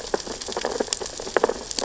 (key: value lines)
label: biophony, sea urchins (Echinidae)
recorder: SoundTrap 600 or HydroMoth